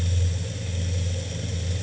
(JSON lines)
{"label": "anthrophony, boat engine", "recorder": "HydroMoth"}